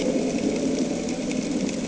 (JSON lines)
{"label": "anthrophony, boat engine", "recorder": "HydroMoth"}